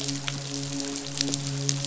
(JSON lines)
{"label": "biophony, midshipman", "recorder": "SoundTrap 500"}